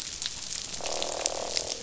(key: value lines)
label: biophony, croak
recorder: SoundTrap 500